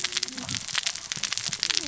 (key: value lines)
label: biophony, cascading saw
recorder: SoundTrap 600 or HydroMoth